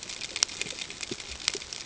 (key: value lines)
label: ambient
recorder: HydroMoth